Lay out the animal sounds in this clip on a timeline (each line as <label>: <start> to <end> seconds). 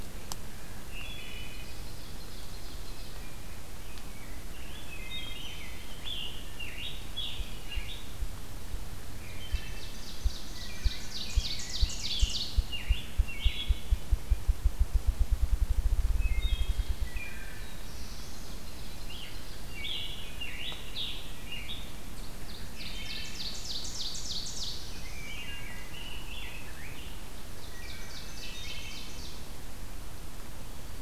Wood Thrush (Hylocichla mustelina): 0.6 to 1.8 seconds
Ovenbird (Seiurus aurocapilla): 1.2 to 3.4 seconds
Rose-breasted Grosbeak (Pheucticus ludovicianus): 3.3 to 4.9 seconds
Wood Thrush (Hylocichla mustelina): 4.6 to 5.6 seconds
Scarlet Tanager (Piranga olivacea): 5.0 to 8.1 seconds
Ruffed Grouse (Bonasa umbellus): 7.3 to 17.8 seconds
Wood Thrush (Hylocichla mustelina): 9.2 to 9.8 seconds
Ovenbird (Seiurus aurocapilla): 9.3 to 12.6 seconds
Rose-breasted Grosbeak (Pheucticus ludovicianus): 10.4 to 12.2 seconds
Scarlet Tanager (Piranga olivacea): 11.7 to 13.8 seconds
Wood Thrush (Hylocichla mustelina): 13.2 to 14.0 seconds
Wood Thrush (Hylocichla mustelina): 16.0 to 17.7 seconds
Black-throated Blue Warbler (Setophaga caerulescens): 17.0 to 18.7 seconds
Ovenbird (Seiurus aurocapilla): 18.3 to 19.6 seconds
Scarlet Tanager (Piranga olivacea): 18.9 to 22.0 seconds
Wood Thrush (Hylocichla mustelina): 19.6 to 20.6 seconds
Ovenbird (Seiurus aurocapilla): 22.1 to 25.1 seconds
Wood Thrush (Hylocichla mustelina): 22.6 to 23.4 seconds
Black-throated Blue Warbler (Setophaga caerulescens): 24.1 to 25.5 seconds
Rose-breasted Grosbeak (Pheucticus ludovicianus): 24.9 to 27.2 seconds
Wood Thrush (Hylocichla mustelina): 25.2 to 25.9 seconds
Ovenbird (Seiurus aurocapilla): 27.1 to 29.9 seconds
Wood Thrush (Hylocichla mustelina): 27.7 to 29.1 seconds